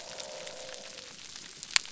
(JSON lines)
{"label": "biophony", "recorder": "SoundTrap 300"}